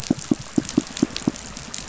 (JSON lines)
{"label": "biophony, pulse", "recorder": "SoundTrap 500"}